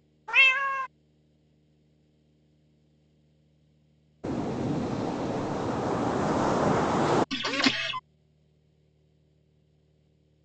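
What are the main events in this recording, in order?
At the start, a cat is audible. Then, about 4 seconds in, waves can be heard. Next, about 7 seconds in, there is the sound of a printer. A faint, steady noise persists.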